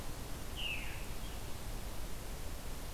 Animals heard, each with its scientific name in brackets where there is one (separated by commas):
Veery (Catharus fuscescens)